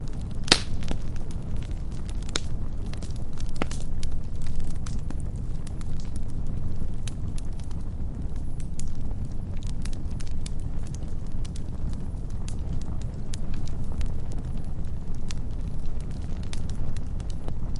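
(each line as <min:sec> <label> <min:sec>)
0:00.0 Branches burning in a campfire. 0:17.8
0:00.5 Branches crackle while burning in a campfire. 0:00.6
0:02.3 Branches crackle while burning in a campfire. 0:04.9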